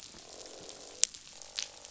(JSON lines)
{"label": "biophony, croak", "recorder": "SoundTrap 500"}